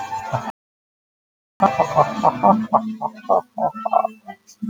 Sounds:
Laughter